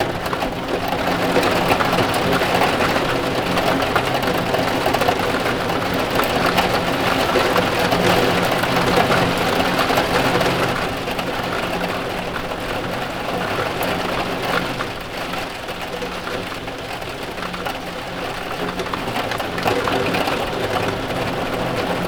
Is this in the jungle?
no